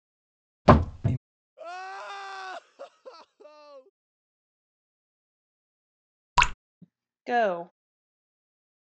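At 0.65 seconds, a wooden drawer closes. Then at 1.56 seconds, quiet crying is heard. Afterwards, at 6.36 seconds, you can hear dripping. Later, at 7.27 seconds, a voice says "Go."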